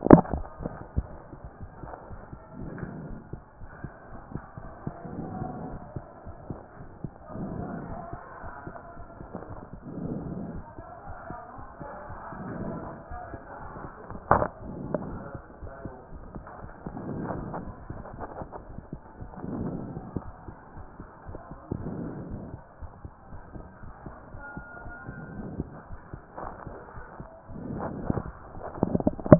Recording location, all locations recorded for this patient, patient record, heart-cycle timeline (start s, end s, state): aortic valve (AV)
aortic valve (AV)+pulmonary valve (PV)+tricuspid valve (TV)+mitral valve (MV)
#Age: Child
#Sex: Male
#Height: 134.0 cm
#Weight: 39.9 kg
#Pregnancy status: False
#Murmur: Absent
#Murmur locations: nan
#Most audible location: nan
#Systolic murmur timing: nan
#Systolic murmur shape: nan
#Systolic murmur grading: nan
#Systolic murmur pitch: nan
#Systolic murmur quality: nan
#Diastolic murmur timing: nan
#Diastolic murmur shape: nan
#Diastolic murmur grading: nan
#Diastolic murmur pitch: nan
#Diastolic murmur quality: nan
#Outcome: Normal
#Campaign: 2014 screening campaign
0.00	2.60	unannotated
2.60	2.68	S1
2.68	2.80	systole
2.80	2.88	S2
2.88	3.10	diastole
3.10	3.19	S1
3.19	3.32	systole
3.32	3.40	S2
3.40	3.62	diastole
3.62	3.70	S1
3.70	3.84	systole
3.84	3.92	S2
3.92	4.12	diastole
4.12	4.20	S1
4.20	4.34	systole
4.34	4.42	S2
4.42	4.60	diastole
4.60	4.69	S1
4.69	4.86	systole
4.86	4.94	S2
4.94	5.17	diastole
5.17	5.25	S1
5.25	5.39	systole
5.39	5.46	S2
5.46	5.66	diastole
5.66	29.39	unannotated